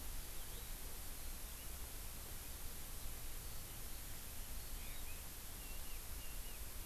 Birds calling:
Chinese Hwamei (Garrulax canorus)

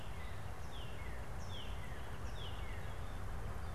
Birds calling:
Song Sparrow (Melospiza melodia), Northern Flicker (Colaptes auratus), Northern Cardinal (Cardinalis cardinalis)

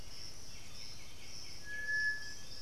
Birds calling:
Piratic Flycatcher (Legatus leucophaius), Black-billed Thrush (Turdus ignobilis), White-winged Becard (Pachyramphus polychopterus)

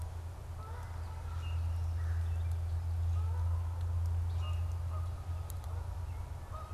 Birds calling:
Canada Goose (Branta canadensis), Common Grackle (Quiscalus quiscula)

